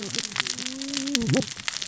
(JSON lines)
{"label": "biophony, cascading saw", "recorder": "SoundTrap 600 or HydroMoth"}